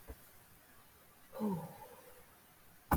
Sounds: Sigh